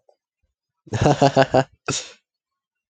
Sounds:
Laughter